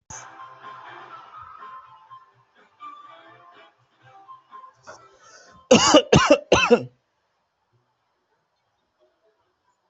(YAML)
expert_labels:
- quality: ok
  cough_type: dry
  dyspnea: false
  wheezing: false
  stridor: false
  choking: false
  congestion: false
  nothing: true
  diagnosis: COVID-19
  severity: mild